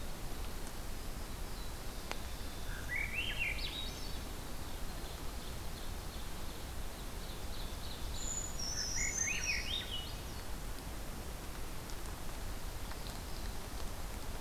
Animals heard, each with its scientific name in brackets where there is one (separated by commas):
Ovenbird (Seiurus aurocapilla), Brown Creeper (Certhia americana), Black-throated Blue Warbler (Setophaga caerulescens), Swainson's Thrush (Catharus ustulatus), Winter Wren (Troglodytes hiemalis)